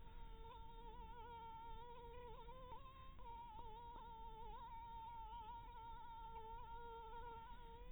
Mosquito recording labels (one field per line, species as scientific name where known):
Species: Anopheles dirus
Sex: female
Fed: blood-fed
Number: one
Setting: cup